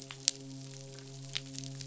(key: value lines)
label: biophony, midshipman
recorder: SoundTrap 500